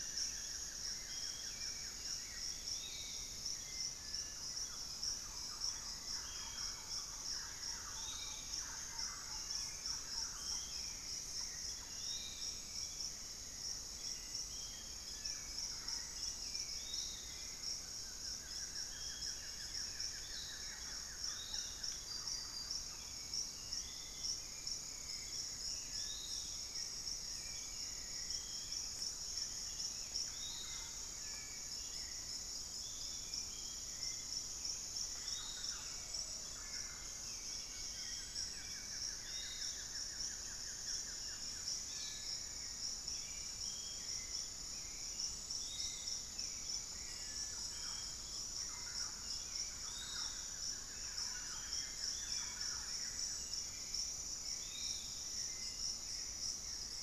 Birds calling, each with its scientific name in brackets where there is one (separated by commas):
Buff-throated Woodcreeper (Xiphorhynchus guttatus), unidentified bird, Hauxwell's Thrush (Turdus hauxwelli), Thrush-like Wren (Campylorhynchus turdinus), Piratic Flycatcher (Legatus leucophaius)